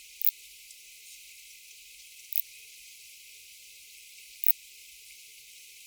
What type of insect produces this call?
orthopteran